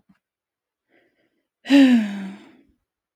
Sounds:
Sigh